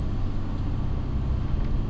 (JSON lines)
{"label": "anthrophony, boat engine", "recorder": "SoundTrap 300"}